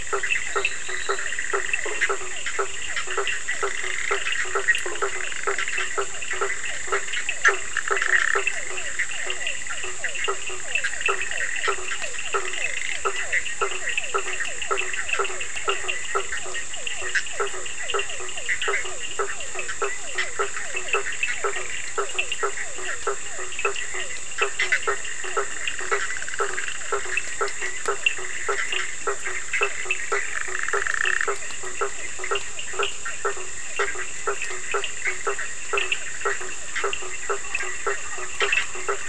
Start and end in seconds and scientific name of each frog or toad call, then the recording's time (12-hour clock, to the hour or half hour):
0.0	1.5	Boana leptolineata
0.0	25.9	Physalaemus cuvieri
0.0	38.8	Sphaenorhynchus surdus
0.0	39.0	Boana bischoffi
0.0	39.0	Boana faber
7.8	8.5	Boana prasina
30.3	31.4	Boana prasina
10:30pm